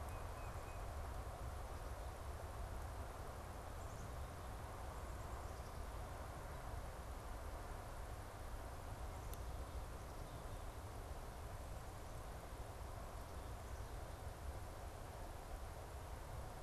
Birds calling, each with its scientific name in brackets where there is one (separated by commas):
Tufted Titmouse (Baeolophus bicolor), Black-capped Chickadee (Poecile atricapillus)